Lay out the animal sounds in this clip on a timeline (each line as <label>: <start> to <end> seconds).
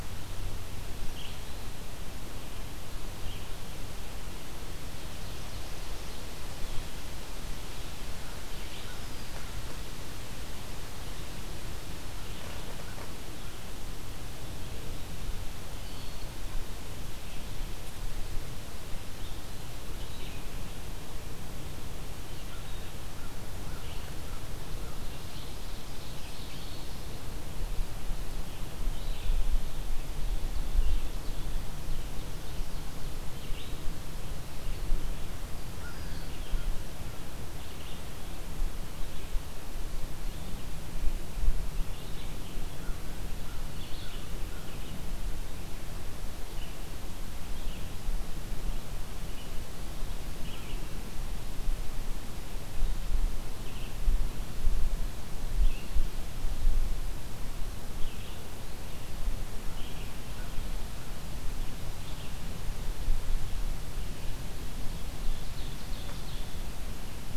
American Crow (Corvus brachyrhynchos): 0.0 to 13.7 seconds
Ovenbird (Seiurus aurocapilla): 4.3 to 6.2 seconds
Red-eyed Vireo (Vireo olivaceus): 14.6 to 64.4 seconds
Eastern Wood-Pewee (Contopus virens): 15.7 to 16.4 seconds
American Crow (Corvus brachyrhynchos): 22.3 to 25.2 seconds
Ovenbird (Seiurus aurocapilla): 24.8 to 26.9 seconds
Ovenbird (Seiurus aurocapilla): 29.7 to 33.7 seconds
American Crow (Corvus brachyrhynchos): 35.6 to 36.9 seconds
American Crow (Corvus brachyrhynchos): 42.6 to 44.7 seconds
Ovenbird (Seiurus aurocapilla): 64.6 to 66.8 seconds